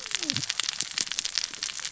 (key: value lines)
label: biophony, cascading saw
recorder: SoundTrap 600 or HydroMoth